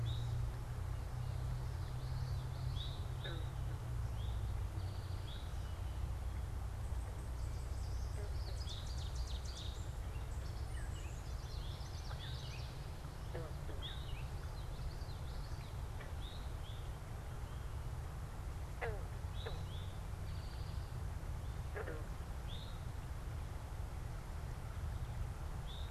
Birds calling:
Eastern Towhee (Pipilo erythrophthalmus)
Ovenbird (Seiurus aurocapilla)
Common Yellowthroat (Geothlypis trichas)

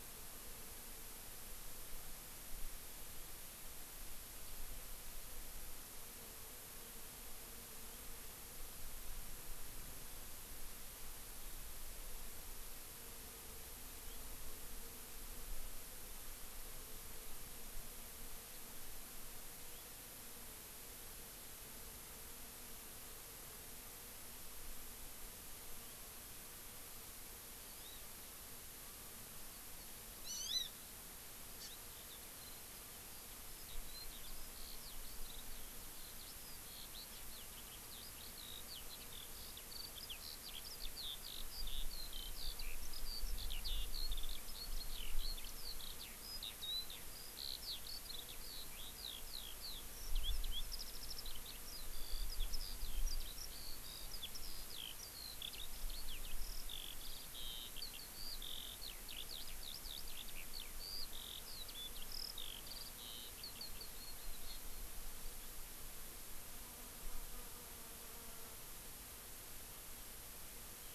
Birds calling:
Eurasian Skylark (Alauda arvensis)
Hawaii Amakihi (Chlorodrepanis virens)

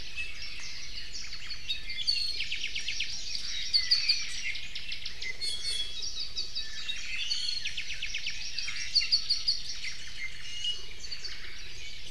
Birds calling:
Iiwi (Drepanis coccinea)
Warbling White-eye (Zosterops japonicus)
Apapane (Himatione sanguinea)
Omao (Myadestes obscurus)
Hawaii Amakihi (Chlorodrepanis virens)

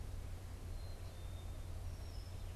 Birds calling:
Black-capped Chickadee (Poecile atricapillus)

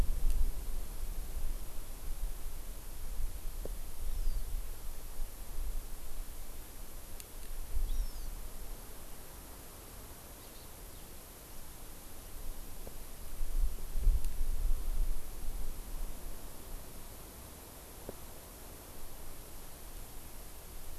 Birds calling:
Hawaii Amakihi (Chlorodrepanis virens)
House Finch (Haemorhous mexicanus)

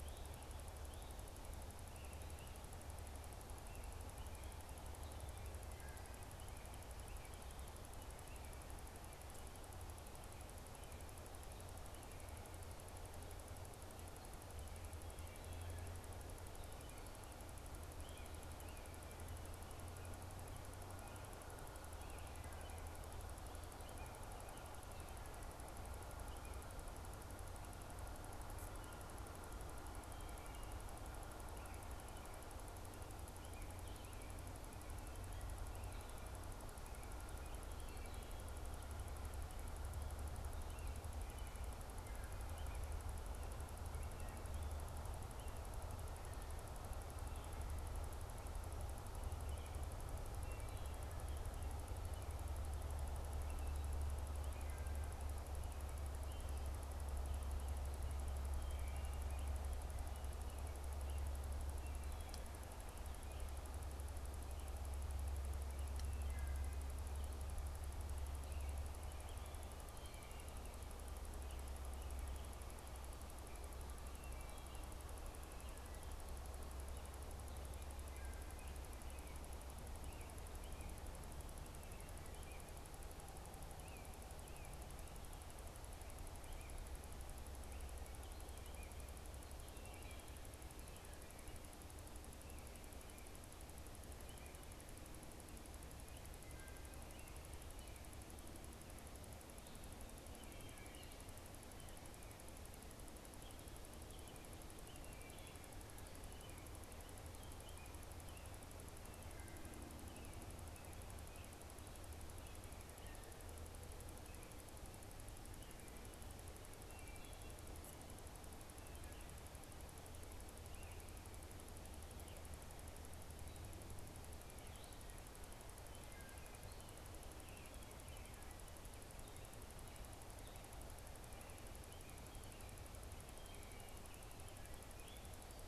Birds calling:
Wood Thrush (Hylocichla mustelina)
American Robin (Turdus migratorius)

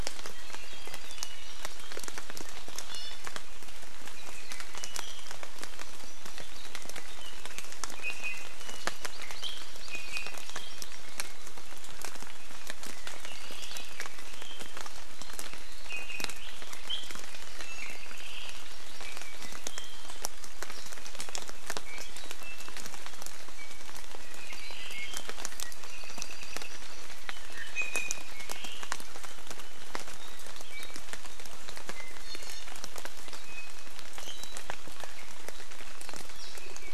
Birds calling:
Hawaii Amakihi (Chlorodrepanis virens)
Omao (Myadestes obscurus)
Iiwi (Drepanis coccinea)
Apapane (Himatione sanguinea)

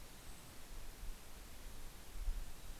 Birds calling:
Golden-crowned Kinglet (Regulus satrapa)

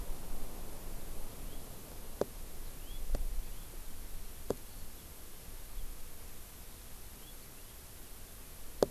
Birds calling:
House Finch (Haemorhous mexicanus)

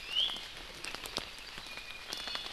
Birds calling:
Apapane (Himatione sanguinea)
Iiwi (Drepanis coccinea)

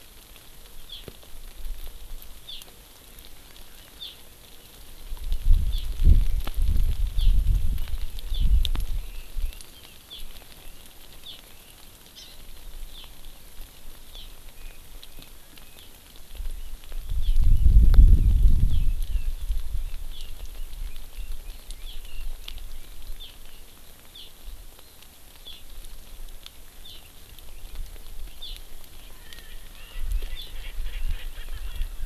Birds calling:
Erckel's Francolin (Pternistis erckelii)
Hawaii Amakihi (Chlorodrepanis virens)
Red-billed Leiothrix (Leiothrix lutea)

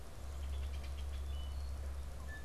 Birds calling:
Red-winged Blackbird (Agelaius phoeniceus)
Wood Thrush (Hylocichla mustelina)

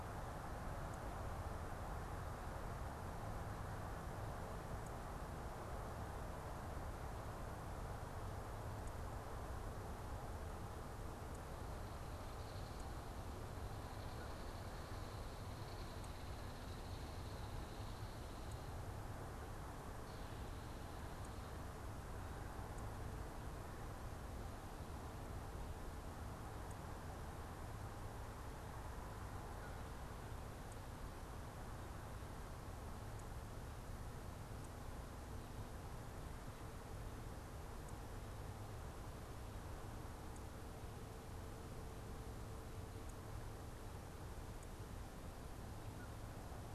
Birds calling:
Belted Kingfisher (Megaceryle alcyon)

